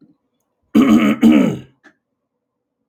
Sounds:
Throat clearing